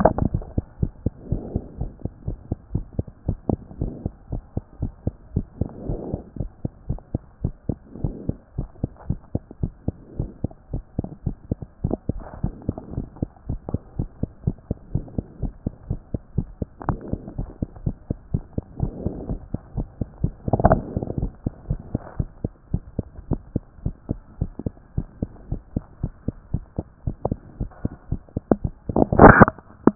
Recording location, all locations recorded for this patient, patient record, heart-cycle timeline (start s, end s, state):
mitral valve (MV)
aortic valve (AV)+pulmonary valve (PV)+tricuspid valve (TV)+mitral valve (MV)
#Age: Child
#Sex: Male
#Height: 93.0 cm
#Weight: 14.8 kg
#Pregnancy status: False
#Murmur: Absent
#Murmur locations: nan
#Most audible location: nan
#Systolic murmur timing: nan
#Systolic murmur shape: nan
#Systolic murmur grading: nan
#Systolic murmur pitch: nan
#Systolic murmur quality: nan
#Diastolic murmur timing: nan
#Diastolic murmur shape: nan
#Diastolic murmur grading: nan
#Diastolic murmur pitch: nan
#Diastolic murmur quality: nan
#Outcome: Abnormal
#Campaign: 2014 screening campaign
0.00	0.41	unannotated
0.41	0.46	S1
0.46	0.56	systole
0.56	0.66	S2
0.66	0.80	diastole
0.80	0.92	S1
0.92	1.04	systole
1.04	1.14	S2
1.14	1.30	diastole
1.30	1.44	S1
1.44	1.54	systole
1.54	1.64	S2
1.64	1.80	diastole
1.80	1.92	S1
1.92	2.02	systole
2.02	2.10	S2
2.10	2.26	diastole
2.26	2.38	S1
2.38	2.50	systole
2.50	2.58	S2
2.58	2.74	diastole
2.74	2.86	S1
2.86	2.98	systole
2.98	3.08	S2
3.08	3.26	diastole
3.26	3.38	S1
3.38	3.50	systole
3.50	3.60	S2
3.60	3.78	diastole
3.78	3.92	S1
3.92	4.04	systole
4.04	4.14	S2
4.14	4.32	diastole
4.32	4.42	S1
4.42	4.54	systole
4.54	4.64	S2
4.64	4.82	diastole
4.82	4.94	S1
4.94	5.06	systole
5.06	5.16	S2
5.16	5.34	diastole
5.34	5.46	S1
5.46	5.60	systole
5.60	5.70	S2
5.70	5.86	diastole
5.86	6.00	S1
6.00	6.12	systole
6.12	6.22	S2
6.22	6.40	diastole
6.40	6.50	S1
6.50	6.62	systole
6.62	6.72	S2
6.72	6.88	diastole
6.88	7.00	S1
7.00	7.12	systole
7.12	7.22	S2
7.22	7.42	diastole
7.42	7.54	S1
7.54	7.68	systole
7.68	7.80	S2
7.80	7.98	diastole
7.98	8.12	S1
8.12	8.26	systole
8.26	8.36	S2
8.36	8.56	diastole
8.56	8.68	S1
8.68	8.80	systole
8.80	8.90	S2
8.90	9.08	diastole
9.08	9.20	S1
9.20	9.34	systole
9.34	9.44	S2
9.44	9.62	diastole
9.62	9.74	S1
9.74	9.86	systole
9.86	9.96	S2
9.96	10.16	diastole
10.16	10.30	S1
10.30	10.42	systole
10.42	10.52	S2
10.52	10.72	diastole
10.72	10.84	S1
10.84	10.96	systole
10.96	11.08	S2
11.08	11.26	diastole
11.26	11.38	S1
11.38	11.52	systole
11.52	11.62	S2
11.62	11.82	diastole
11.82	11.98	S1
11.98	12.14	systole
12.14	12.24	S2
12.24	12.42	diastole
12.42	12.54	S1
12.54	12.66	systole
12.66	12.76	S2
12.76	12.94	diastole
12.94	13.06	S1
13.06	13.20	systole
13.20	13.30	S2
13.30	13.48	diastole
13.48	13.60	S1
13.60	13.72	systole
13.72	13.82	S2
13.82	13.98	diastole
13.98	14.08	S1
14.08	14.20	systole
14.20	14.30	S2
14.30	14.46	diastole
14.46	14.56	S1
14.56	14.68	systole
14.68	14.78	S2
14.78	14.94	diastole
14.94	15.06	S1
15.06	15.16	systole
15.16	15.26	S2
15.26	15.42	diastole
15.42	15.52	S1
15.52	15.64	systole
15.64	15.74	S2
15.74	15.90	diastole
15.90	16.00	S1
16.00	16.12	systole
16.12	16.20	S2
16.20	16.36	diastole
16.36	16.48	S1
16.48	16.60	systole
16.60	16.70	S2
16.70	16.88	diastole
16.88	17.00	S1
17.00	17.10	systole
17.10	17.20	S2
17.20	17.38	diastole
17.38	17.50	S1
17.50	17.60	systole
17.60	17.68	S2
17.68	17.84	diastole
17.84	17.96	S1
17.96	18.08	systole
18.08	18.16	S2
18.16	18.32	diastole
18.32	18.44	S1
18.44	18.56	systole
18.56	18.64	S2
18.64	18.80	diastole
18.80	18.94	S1
18.94	19.04	systole
19.04	19.14	S2
19.14	19.28	diastole
19.28	19.40	S1
19.40	19.52	systole
19.52	19.60	S2
19.60	19.76	diastole
19.76	19.88	S1
19.88	19.98	systole
19.98	20.06	S2
20.06	20.22	diastole
20.22	29.95	unannotated